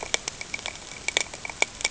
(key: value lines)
label: ambient
recorder: HydroMoth